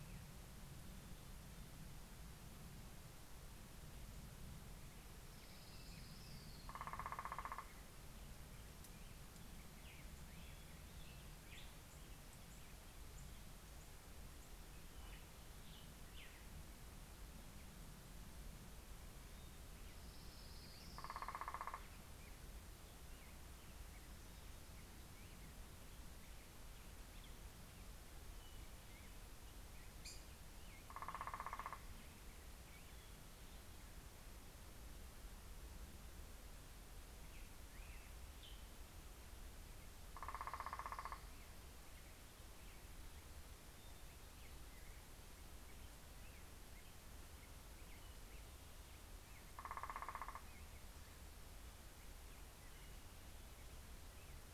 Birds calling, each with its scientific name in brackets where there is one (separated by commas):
Black-headed Grosbeak (Pheucticus melanocephalus), Orange-crowned Warbler (Leiothlypis celata), Northern Flicker (Colaptes auratus)